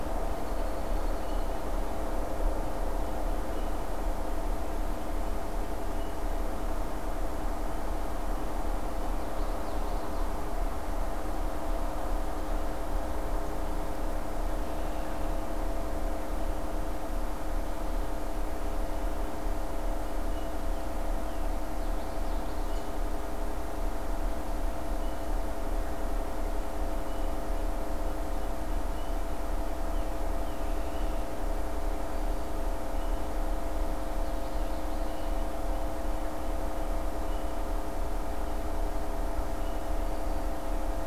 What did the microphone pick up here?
American Robin, Common Yellowthroat